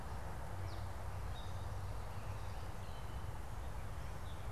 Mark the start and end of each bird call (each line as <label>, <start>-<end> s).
Gray Catbird (Dumetella carolinensis), 0.0-4.5 s